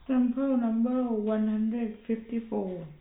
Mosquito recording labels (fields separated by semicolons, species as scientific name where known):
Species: no mosquito; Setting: cup